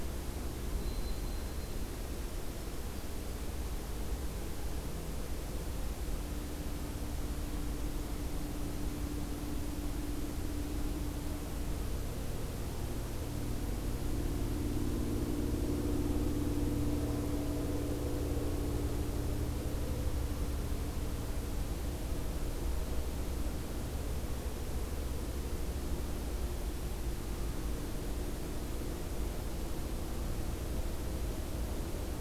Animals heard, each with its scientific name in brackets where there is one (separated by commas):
White-throated Sparrow (Zonotrichia albicollis)